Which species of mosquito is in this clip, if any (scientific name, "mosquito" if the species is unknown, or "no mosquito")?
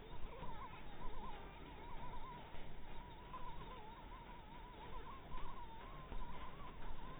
mosquito